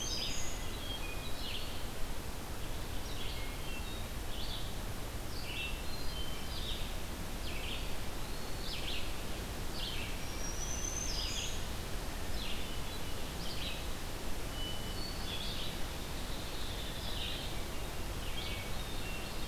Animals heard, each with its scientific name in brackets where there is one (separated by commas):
Eastern Wood-Pewee (Contopus virens), Red-eyed Vireo (Vireo olivaceus), Black-throated Green Warbler (Setophaga virens), Hermit Thrush (Catharus guttatus), Hairy Woodpecker (Dryobates villosus)